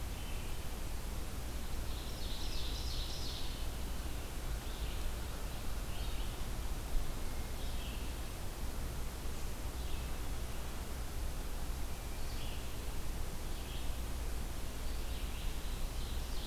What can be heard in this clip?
Red-eyed Vireo, Ovenbird, Wood Thrush